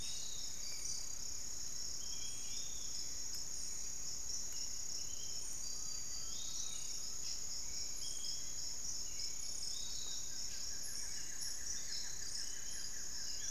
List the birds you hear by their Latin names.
Turdus hauxwelli, Legatus leucophaius, Crypturellus undulatus, Xiphorhynchus guttatus